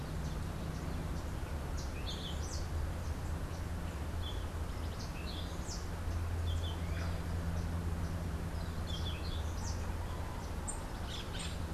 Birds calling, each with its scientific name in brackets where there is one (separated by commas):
Yellow-throated Euphonia (Euphonia hirundinacea), Orange-billed Nightingale-Thrush (Catharus aurantiirostris)